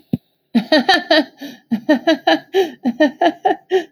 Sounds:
Laughter